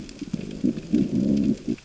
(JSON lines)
{"label": "biophony, growl", "recorder": "SoundTrap 600 or HydroMoth"}